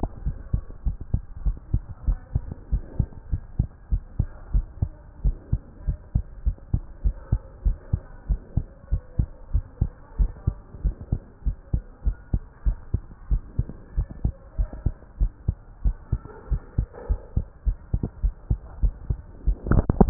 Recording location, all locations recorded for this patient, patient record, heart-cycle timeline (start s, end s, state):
tricuspid valve (TV)
aortic valve (AV)+pulmonary valve (PV)+tricuspid valve (TV)+mitral valve (MV)
#Age: Child
#Sex: Male
#Height: 130.0 cm
#Weight: 30.4 kg
#Pregnancy status: False
#Murmur: Absent
#Murmur locations: nan
#Most audible location: nan
#Systolic murmur timing: nan
#Systolic murmur shape: nan
#Systolic murmur grading: nan
#Systolic murmur pitch: nan
#Systolic murmur quality: nan
#Diastolic murmur timing: nan
#Diastolic murmur shape: nan
#Diastolic murmur grading: nan
#Diastolic murmur pitch: nan
#Diastolic murmur quality: nan
#Outcome: Abnormal
#Campaign: 2015 screening campaign
0.00	0.22	unannotated
0.22	0.36	S1
0.36	0.50	systole
0.50	0.64	S2
0.64	0.86	diastole
0.86	0.98	S1
0.98	1.10	systole
1.10	1.24	S2
1.24	1.44	diastole
1.44	1.58	S1
1.58	1.70	systole
1.70	1.82	S2
1.82	2.04	diastole
2.04	2.18	S1
2.18	2.32	systole
2.32	2.46	S2
2.46	2.70	diastole
2.70	2.84	S1
2.84	2.96	systole
2.96	3.10	S2
3.10	3.30	diastole
3.30	3.40	S1
3.40	3.56	systole
3.56	3.70	S2
3.70	3.90	diastole
3.90	4.04	S1
4.04	4.16	systole
4.16	4.30	S2
4.30	4.52	diastole
4.52	4.66	S1
4.66	4.78	systole
4.78	4.92	S2
4.92	5.22	diastole
5.22	5.36	S1
5.36	5.50	systole
5.50	5.60	S2
5.60	5.86	diastole
5.86	5.96	S1
5.96	6.12	systole
6.12	6.26	S2
6.26	6.44	diastole
6.44	6.54	S1
6.54	6.70	systole
6.70	6.82	S2
6.82	7.04	diastole
7.04	7.18	S1
7.18	7.30	systole
7.30	7.42	S2
7.42	7.64	diastole
7.64	7.78	S1
7.78	7.90	systole
7.90	8.00	S2
8.00	8.28	diastole
8.28	8.42	S1
8.42	8.56	systole
8.56	8.68	S2
8.68	8.90	diastole
8.90	9.00	S1
9.00	9.18	systole
9.18	9.30	S2
9.30	9.52	diastole
9.52	9.66	S1
9.66	9.80	systole
9.80	9.90	S2
9.90	10.14	diastole
10.14	10.32	S1
10.32	10.46	systole
10.46	10.56	S2
10.56	10.82	diastole
10.82	10.94	S1
10.94	11.10	systole
11.10	11.20	S2
11.20	11.44	diastole
11.44	11.56	S1
11.56	11.72	systole
11.72	11.82	S2
11.82	12.04	diastole
12.04	12.16	S1
12.16	12.32	systole
12.32	12.42	S2
12.42	12.66	diastole
12.66	12.78	S1
12.78	12.92	systole
12.92	13.02	S2
13.02	13.30	diastole
13.30	13.44	S1
13.44	13.58	systole
13.58	13.68	S2
13.68	13.96	diastole
13.96	14.08	S1
14.08	14.22	systole
14.22	14.34	S2
14.34	14.58	diastole
14.58	14.68	S1
14.68	14.84	systole
14.84	14.94	S2
14.94	15.20	diastole
15.20	15.34	S1
15.34	15.46	systole
15.46	15.58	S2
15.58	15.84	diastole
15.84	15.98	S1
15.98	16.12	systole
16.12	16.22	S2
16.22	16.50	diastole
16.50	16.60	S1
16.60	16.74	systole
16.74	16.88	S2
16.88	17.08	diastole
17.08	17.20	S1
17.20	17.32	systole
17.32	17.46	S2
17.46	17.66	diastole
17.66	17.80	S1
17.80	17.92	systole
17.92	18.02	S2
18.02	18.22	diastole
18.22	18.34	S1
18.34	18.46	systole
18.46	18.60	S2
18.60	18.82	diastole
18.82	18.96	S1
18.96	19.08	systole
19.08	19.20	S2
19.20	19.40	diastole
19.40	20.10	unannotated